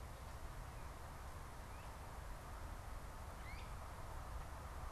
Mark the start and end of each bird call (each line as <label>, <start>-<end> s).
Great Crested Flycatcher (Myiarchus crinitus), 3.3-3.8 s